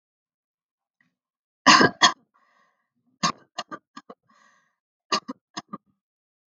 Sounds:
Cough